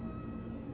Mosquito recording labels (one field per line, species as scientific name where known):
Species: Culex quinquefasciatus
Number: one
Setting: insect culture